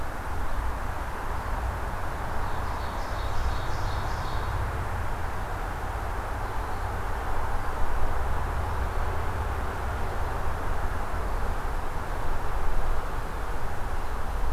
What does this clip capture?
Ovenbird